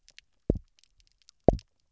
{"label": "biophony, double pulse", "recorder": "SoundTrap 300"}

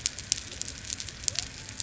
{"label": "biophony", "recorder": "SoundTrap 300"}
{"label": "anthrophony, boat engine", "recorder": "SoundTrap 300"}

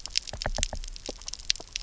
{"label": "biophony, knock", "recorder": "SoundTrap 300"}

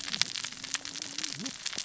{"label": "biophony, cascading saw", "recorder": "SoundTrap 600 or HydroMoth"}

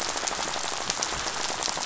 {"label": "biophony, rattle", "recorder": "SoundTrap 500"}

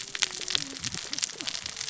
{"label": "biophony, cascading saw", "recorder": "SoundTrap 600 or HydroMoth"}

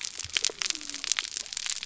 {"label": "biophony", "recorder": "SoundTrap 300"}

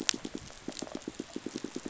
{"label": "biophony, rattle response", "recorder": "SoundTrap 500"}
{"label": "biophony, pulse", "recorder": "SoundTrap 500"}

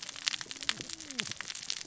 {"label": "biophony, cascading saw", "recorder": "SoundTrap 600 or HydroMoth"}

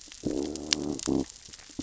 {"label": "biophony, growl", "recorder": "SoundTrap 600 or HydroMoth"}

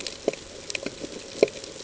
{"label": "ambient", "recorder": "HydroMoth"}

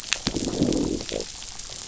{"label": "biophony, growl", "recorder": "SoundTrap 500"}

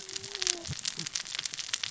{"label": "biophony, cascading saw", "recorder": "SoundTrap 600 or HydroMoth"}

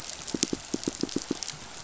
{"label": "biophony, pulse", "recorder": "SoundTrap 500"}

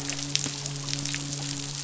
{"label": "biophony, midshipman", "recorder": "SoundTrap 500"}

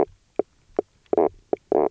{"label": "biophony, knock croak", "recorder": "SoundTrap 300"}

